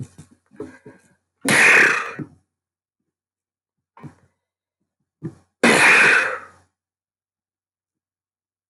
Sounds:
Sneeze